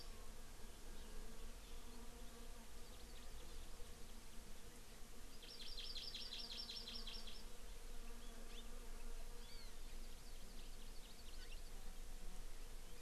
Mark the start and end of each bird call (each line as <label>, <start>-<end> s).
Hawaii Amakihi (Chlorodrepanis virens), 2.8-3.8 s
Hawaii Amakihi (Chlorodrepanis virens), 5.4-7.4 s
Hawaii Amakihi (Chlorodrepanis virens), 8.5-8.6 s
Hawaii Amakihi (Chlorodrepanis virens), 9.4-11.7 s